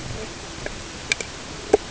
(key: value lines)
label: ambient
recorder: HydroMoth